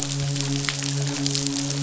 {"label": "biophony, midshipman", "recorder": "SoundTrap 500"}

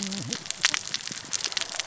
{"label": "biophony, cascading saw", "recorder": "SoundTrap 600 or HydroMoth"}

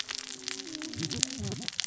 {"label": "biophony, cascading saw", "recorder": "SoundTrap 600 or HydroMoth"}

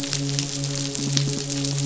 {"label": "biophony", "recorder": "SoundTrap 500"}
{"label": "biophony, midshipman", "recorder": "SoundTrap 500"}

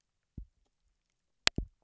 {"label": "biophony, double pulse", "recorder": "SoundTrap 300"}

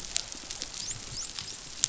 {"label": "biophony, dolphin", "recorder": "SoundTrap 500"}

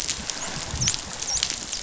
{"label": "biophony, dolphin", "recorder": "SoundTrap 500"}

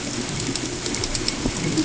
{"label": "ambient", "recorder": "HydroMoth"}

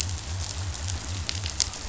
{"label": "biophony", "recorder": "SoundTrap 500"}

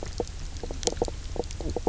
{"label": "biophony, knock croak", "recorder": "SoundTrap 300"}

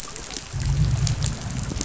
{"label": "biophony, growl", "recorder": "SoundTrap 500"}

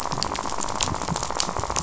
{"label": "biophony, rattle", "recorder": "SoundTrap 500"}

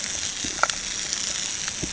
{"label": "anthrophony, boat engine", "recorder": "HydroMoth"}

